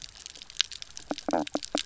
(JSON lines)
{"label": "biophony, knock croak", "recorder": "SoundTrap 300"}